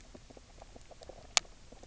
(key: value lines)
label: biophony, knock croak
recorder: SoundTrap 300